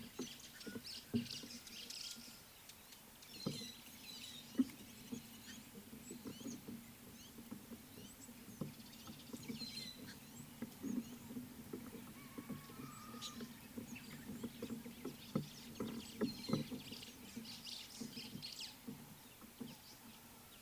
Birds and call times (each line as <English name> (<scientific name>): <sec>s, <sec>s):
White-browed Sparrow-Weaver (Plocepasser mahali): 1.3s, 17.7s
White-headed Buffalo-Weaver (Dinemellia dinemelli): 3.5s